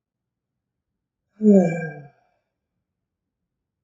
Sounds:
Sigh